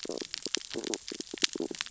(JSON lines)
{"label": "biophony, stridulation", "recorder": "SoundTrap 600 or HydroMoth"}